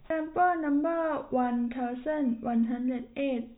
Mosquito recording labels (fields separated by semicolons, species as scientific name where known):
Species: no mosquito; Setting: cup